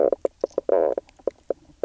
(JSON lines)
{"label": "biophony, knock croak", "recorder": "SoundTrap 300"}